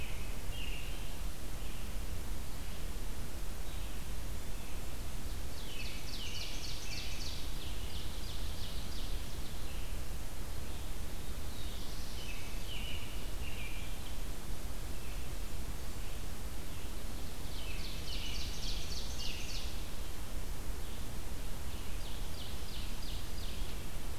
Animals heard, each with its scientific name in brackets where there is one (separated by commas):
Red-eyed Vireo (Vireo olivaceus), Black-throated Blue Warbler (Setophaga caerulescens), Ovenbird (Seiurus aurocapilla), American Robin (Turdus migratorius)